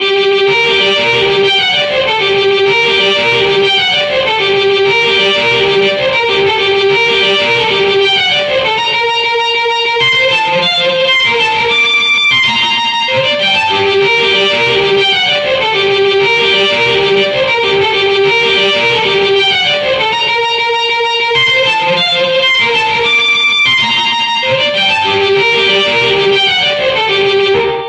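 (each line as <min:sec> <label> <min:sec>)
0:00.1 A violin plays a fast melody with a slightly distorted sound. 0:27.7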